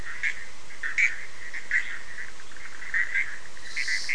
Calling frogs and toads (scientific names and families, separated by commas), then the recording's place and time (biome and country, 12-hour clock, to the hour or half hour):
Boana bischoffi (Hylidae)
Atlantic Forest, Brazil, 10:30pm